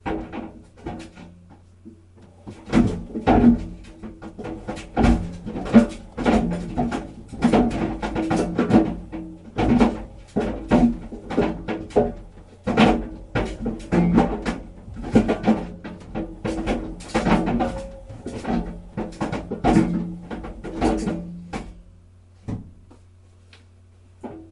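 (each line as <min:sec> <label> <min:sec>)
0:00.0 An empty metal barrel tumbles unevenly across the ground. 0:24.5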